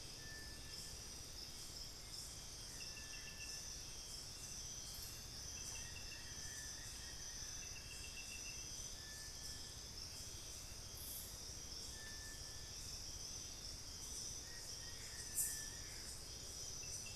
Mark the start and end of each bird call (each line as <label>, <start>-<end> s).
Buff-throated Woodcreeper (Xiphorhynchus guttatus), 4.9-7.6 s
Plain-winged Antshrike (Thamnophilus schistaceus), 5.7-7.7 s
Plain-winged Antshrike (Thamnophilus schistaceus), 14.4-15.8 s